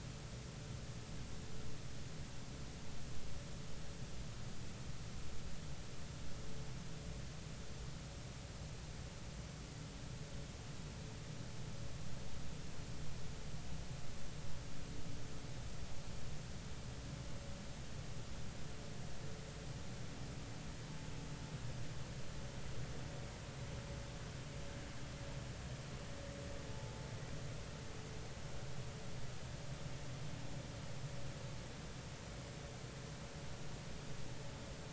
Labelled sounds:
26.7	27.0	vessel noise, 0.80 to 0.90 kHz

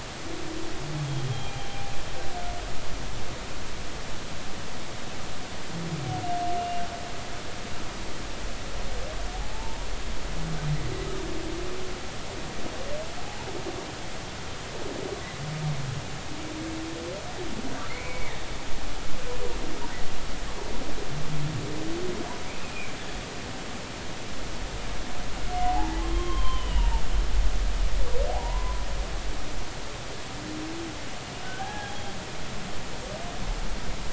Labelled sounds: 6.6	6.8	humpback whale, 2.75 to 2.85 kHz
9.3	9.9	humpback whale, 0.80 to 1.1 kHz
17.9	18.4	humpback whale, 1.8 to 2.4 kHz
22.5	22.9	humpback whale, 2.2 to 2.7 kHz
25.5	27.0	humpback whale, 0.80 to 3.3 kHz
28.4	28.8	humpback whale, 0.90 to 1.1 kHz
31.4	32.1	humpback whale, 0.80 to 3.4 kHz

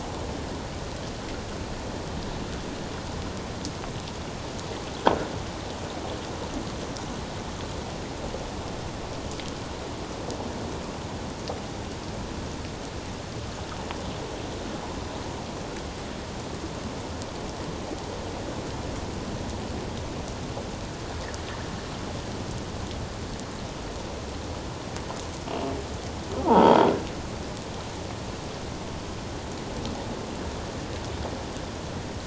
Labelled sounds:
26.5	26.8	croaking sound likely from a nearby submerged object, 0.78 to 1.0 kHz

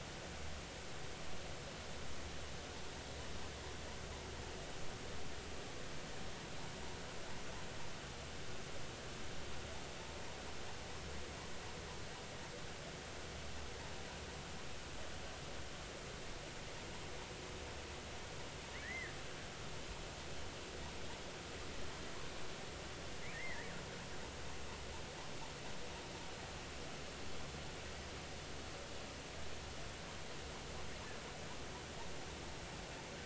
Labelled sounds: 18.8	19.1	killer whale, 1.6 to 2.2 kHz
23.3	23.7	killer whale, 1.6 to 2.2 kHz

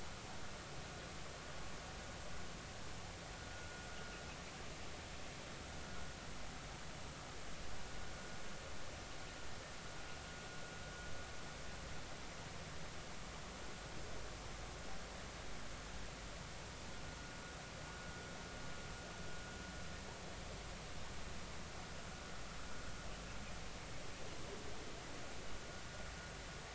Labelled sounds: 3.5	3.8	vessel noise, 1.4 to 1.5 kHz

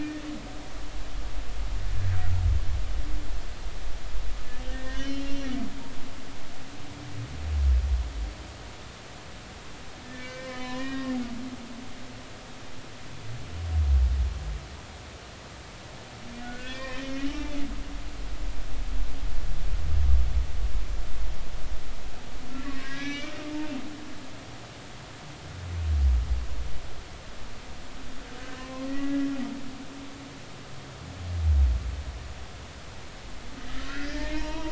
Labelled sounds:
4.7	5.7	humpback whale, 1.5 to 5.3 kHz
10.1	11.2	humpback whale, 0.96 to 3.8 kHz
16.4	17.5	humpback whale, 0.83 to 2.7 kHz
22.6	23.3	humpback whale, 1.1 to 6.1 kHz
28.6	29.3	humpback whale, 0.99 to 2.0 kHz
33.7	34.7	humpback whale, 0.86 to 2.9 kHz

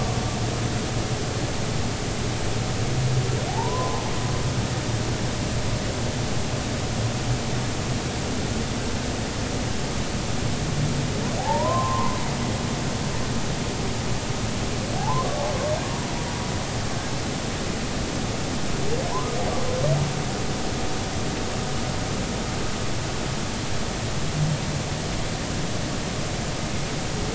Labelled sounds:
3.5	4.1	humpback whale, 0.80 to 1.1 kHz
11.4	12.2	humpback whale, 0.80 to 1.1 kHz
15.0	15.4	humpback whale, 0.80 to 1.2 kHz
19.1	19.4	humpback whale, 0.80 to 1.3 kHz

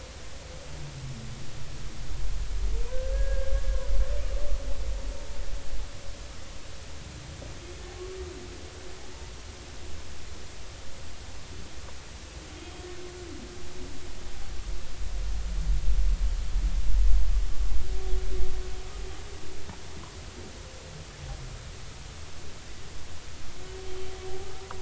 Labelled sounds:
2.9	3.5	humpback whale, 1.5 to 1.7 kHz
12.6	12.9	humpback whale, 3.2 to 3.3 kHz
24.4	24.7	humpback whale, 1.2 to 1.4 kHz

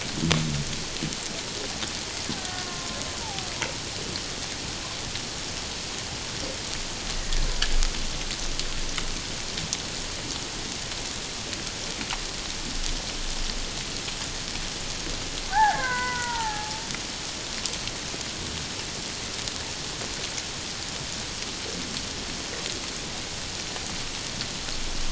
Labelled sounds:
2.4	3.5	killer whale, Bigg's (transient), 0.78 to 1.6 kHz
15.5	16.8	killer whale, Bigg's (transient), 0.78 to 2.2 kHz

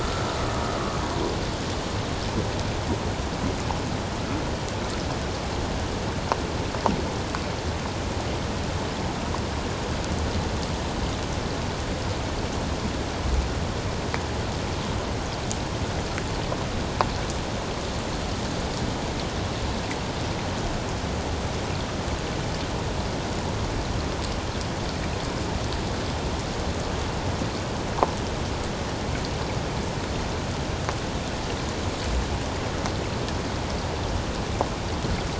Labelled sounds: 0.0	0.3	humpback whale, 1.2 to 1.4 kHz

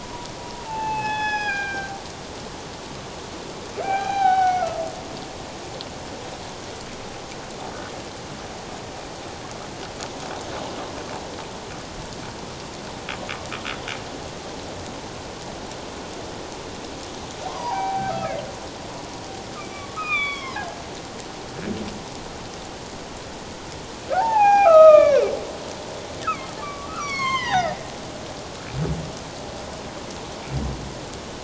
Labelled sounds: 0.0	2.0	humpback whale, 0.78 to 6.0 kHz
3.8	4.8	humpback whale, 0.78 to 4.0 kHz
17.5	18.4	humpback whale, 0.78 to 2.7 kHz
19.6	20.6	humpback whale, 1.0 to 5.7 kHz
24.1	25.2	humpback whale, 0.78 to 5.8 kHz
26.2	27.8	humpback whale, 0.78 to 7.6 kHz

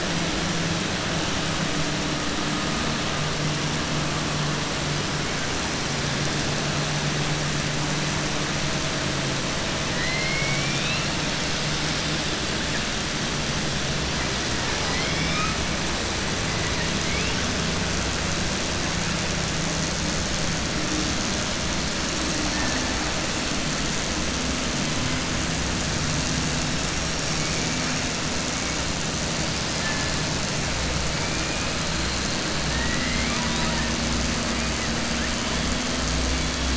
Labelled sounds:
9.9	11.1	killer whale, southern resident, 1.0 to 5.6 kHz
14.6	15.6	killer whale, southern resident, 0.82 to 5.3 kHz
32.7	33.9	killer whale, southern resident, 0.92 to 4.0 kHz

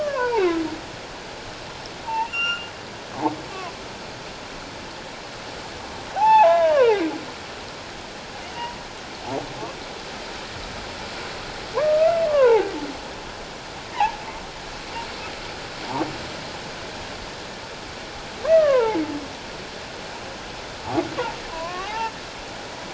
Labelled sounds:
0.0	0.6	humpback whale, 0.78 to 2.5 kHz
2.0	2.7	humpback whale, 0.81 to 7.2 kHz
6.1	7.1	humpback whale, 0.78 to 2.8 kHz
11.7	12.7	humpback whale, 0.78 to 2.1 kHz
13.9	14.2	humpback whale, 0.78 to 1.1 kHz
18.5	19.0	humpback whale, 0.81 to 2.0 kHz
21.5	22.1	humpback whale, 0.78 to 1.2 kHz

